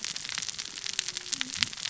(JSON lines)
{"label": "biophony, cascading saw", "recorder": "SoundTrap 600 or HydroMoth"}